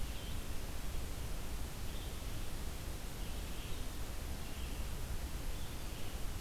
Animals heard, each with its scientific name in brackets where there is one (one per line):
Red-eyed Vireo (Vireo olivaceus)